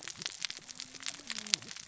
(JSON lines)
{"label": "biophony, cascading saw", "recorder": "SoundTrap 600 or HydroMoth"}